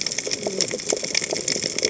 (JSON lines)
{"label": "biophony, cascading saw", "recorder": "HydroMoth"}